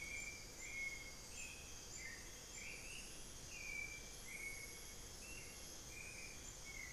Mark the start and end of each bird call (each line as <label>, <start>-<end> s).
Hauxwell's Thrush (Turdus hauxwelli), 0.0-6.9 s